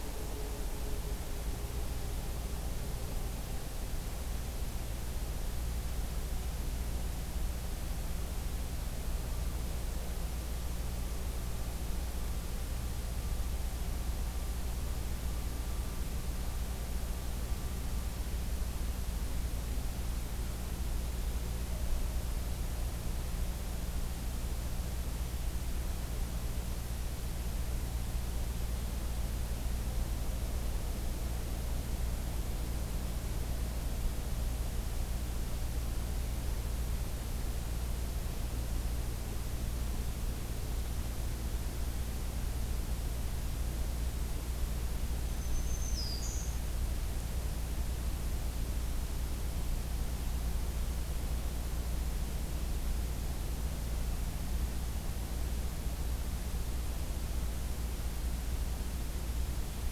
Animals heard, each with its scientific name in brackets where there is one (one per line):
Black-throated Green Warbler (Setophaga virens)